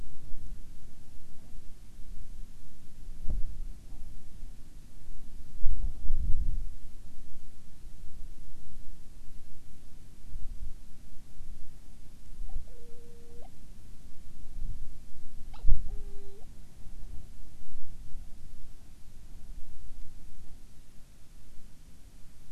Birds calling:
Hawaiian Petrel (Pterodroma sandwichensis)

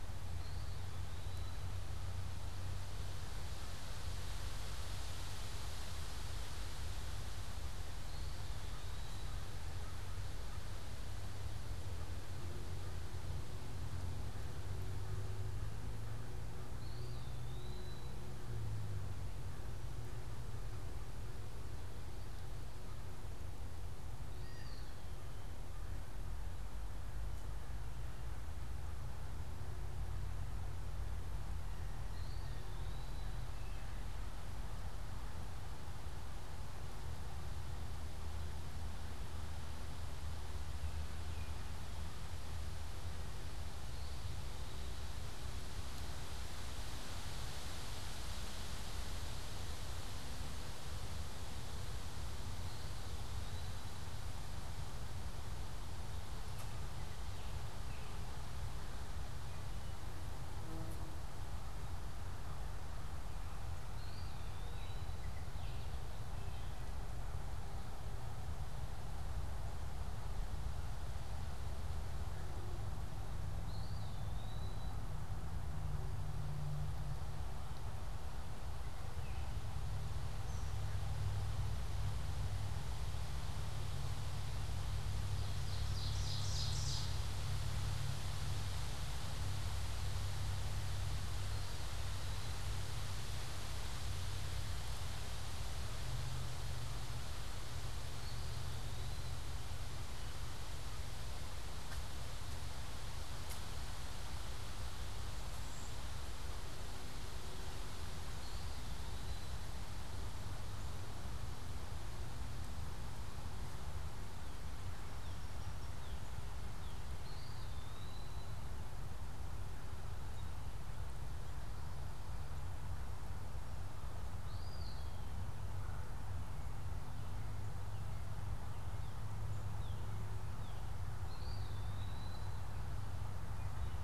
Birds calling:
Blue Jay (Cyanocitta cristata), American Goldfinch (Spinus tristis), Ovenbird (Seiurus aurocapilla), Baltimore Oriole (Icterus galbula), Cedar Waxwing (Bombycilla cedrorum), American Robin (Turdus migratorius), Wood Thrush (Hylocichla mustelina), Eastern Wood-Pewee (Contopus virens), Northern Cardinal (Cardinalis cardinalis)

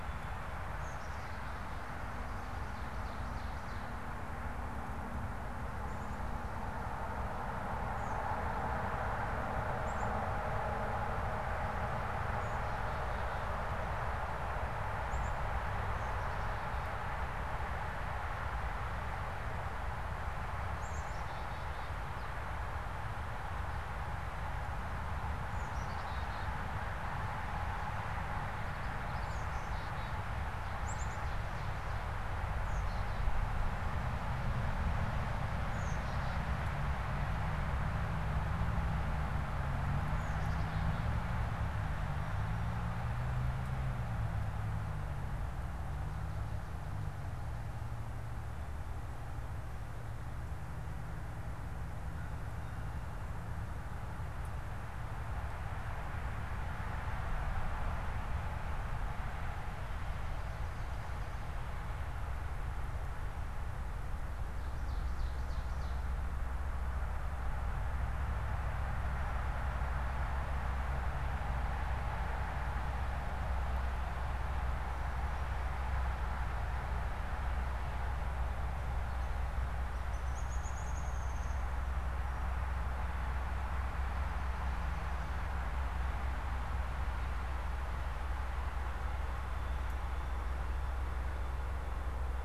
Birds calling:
Black-capped Chickadee (Poecile atricapillus), Downy Woodpecker (Dryobates pubescens), Ovenbird (Seiurus aurocapilla)

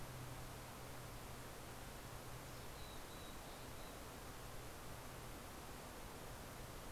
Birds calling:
Mountain Chickadee (Poecile gambeli)

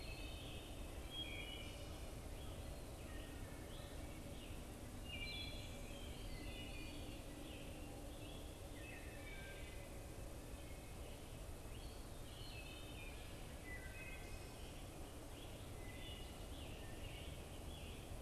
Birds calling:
Scarlet Tanager (Piranga olivacea), American Robin (Turdus migratorius), Wood Thrush (Hylocichla mustelina)

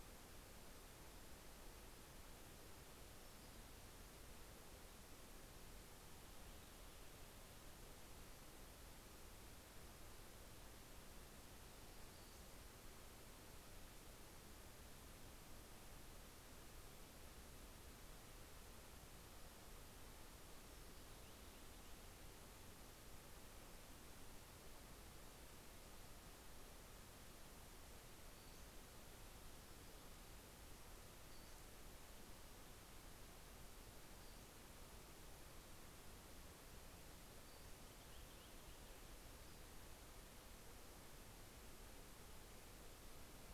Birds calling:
Pacific-slope Flycatcher (Empidonax difficilis), Purple Finch (Haemorhous purpureus)

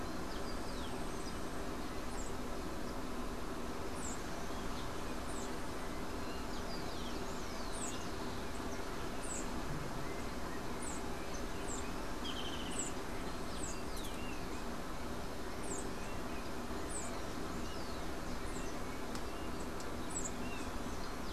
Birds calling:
unidentified bird, Rufous-collared Sparrow (Zonotrichia capensis), Golden-faced Tyrannulet (Zimmerius chrysops)

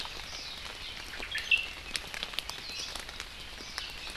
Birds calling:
Omao (Myadestes obscurus), Warbling White-eye (Zosterops japonicus)

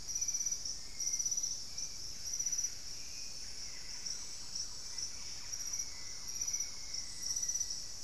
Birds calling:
Black-faced Antthrush (Formicarius analis), unidentified bird, Hauxwell's Thrush (Turdus hauxwelli), Thrush-like Wren (Campylorhynchus turdinus), Buff-breasted Wren (Cantorchilus leucotis)

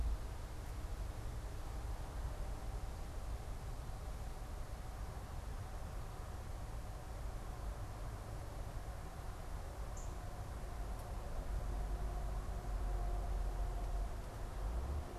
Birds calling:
Northern Cardinal (Cardinalis cardinalis)

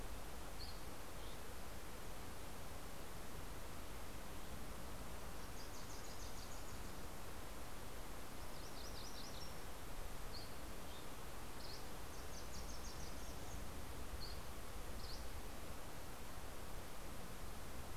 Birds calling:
Dusky Flycatcher (Empidonax oberholseri), MacGillivray's Warbler (Geothlypis tolmiei), Wilson's Warbler (Cardellina pusilla)

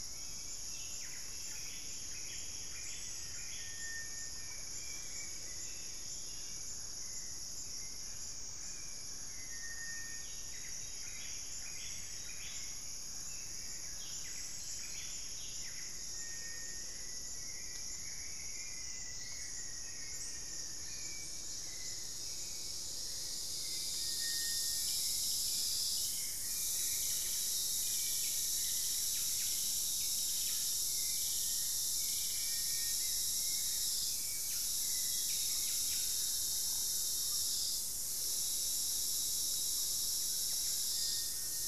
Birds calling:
Hauxwell's Thrush (Turdus hauxwelli), Rufous-fronted Antthrush (Formicarius rufifrons), Black-faced Antthrush (Formicarius analis), Buff-breasted Wren (Cantorchilus leucotis), Screaming Piha (Lipaugus vociferans)

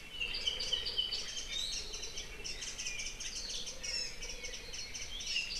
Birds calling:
Warbling White-eye (Zosterops japonicus), Apapane (Himatione sanguinea), Iiwi (Drepanis coccinea)

